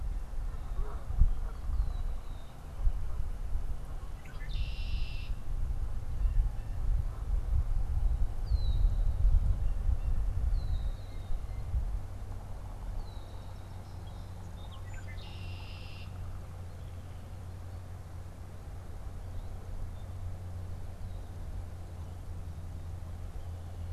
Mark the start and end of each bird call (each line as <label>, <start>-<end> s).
Canada Goose (Branta canadensis), 0.0-2.4 s
Red-winged Blackbird (Agelaius phoeniceus), 1.2-5.5 s
Red-winged Blackbird (Agelaius phoeniceus), 8.1-16.4 s
Blue Jay (Cyanocitta cristata), 9.4-11.9 s
Song Sparrow (Melospiza melodia), 13.0-15.0 s